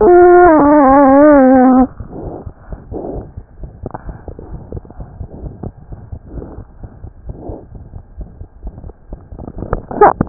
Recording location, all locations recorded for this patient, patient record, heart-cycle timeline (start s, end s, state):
pulmonary valve (PV)
aortic valve (AV)+pulmonary valve (PV)+tricuspid valve (TV)+mitral valve (MV)
#Age: Child
#Sex: Male
#Height: 71.0 cm
#Weight: 9.1 kg
#Pregnancy status: False
#Murmur: Absent
#Murmur locations: nan
#Most audible location: nan
#Systolic murmur timing: nan
#Systolic murmur shape: nan
#Systolic murmur grading: nan
#Systolic murmur pitch: nan
#Systolic murmur quality: nan
#Diastolic murmur timing: nan
#Diastolic murmur shape: nan
#Diastolic murmur grading: nan
#Diastolic murmur pitch: nan
#Diastolic murmur quality: nan
#Outcome: Abnormal
#Campaign: 2015 screening campaign
0.00	4.05	unannotated
4.05	4.16	S1
4.16	4.26	systole
4.26	4.34	S2
4.34	4.50	diastole
4.50	4.62	S1
4.62	4.72	systole
4.72	4.84	S2
4.84	4.97	diastole
4.97	5.07	S1
5.07	5.17	systole
5.17	5.26	S2
5.26	5.42	diastole
5.42	5.51	S1
5.51	5.62	systole
5.62	5.74	S2
5.74	5.89	diastole
5.89	5.98	S1
5.98	6.10	systole
6.10	6.18	S2
6.18	6.32	diastole
6.32	6.43	S1
6.43	6.56	systole
6.56	6.64	S2
6.64	6.81	diastole
6.81	6.92	S1
6.92	7.01	systole
7.01	7.12	S2
7.12	7.26	diastole
7.26	7.38	S1
7.38	7.48	systole
7.48	7.58	S2
7.58	7.73	diastole
7.73	7.86	S1
7.86	7.94	systole
7.94	8.02	S2
8.02	8.18	diastole
8.18	8.30	S1
8.30	8.38	systole
8.38	8.48	S2
8.48	8.62	diastole
8.62	8.74	S1
8.74	8.85	systole
8.85	8.94	S2
8.94	9.08	diastole
9.08	9.17	S1
9.17	10.29	unannotated